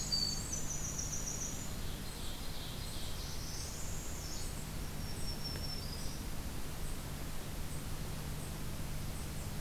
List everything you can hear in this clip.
Winter Wren, Ovenbird, Northern Parula, Black-throated Green Warbler